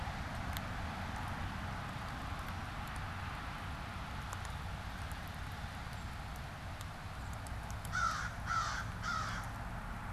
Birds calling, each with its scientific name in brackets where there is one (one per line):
American Crow (Corvus brachyrhynchos)